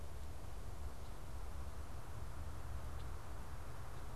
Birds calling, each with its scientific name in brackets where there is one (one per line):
Red-winged Blackbird (Agelaius phoeniceus)